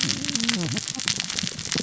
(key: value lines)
label: biophony, cascading saw
recorder: SoundTrap 600 or HydroMoth